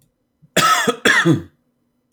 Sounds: Cough